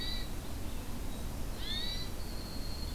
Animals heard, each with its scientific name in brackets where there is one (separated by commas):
Winter Wren (Troglodytes hiemalis), Hermit Thrush (Catharus guttatus), Red-eyed Vireo (Vireo olivaceus)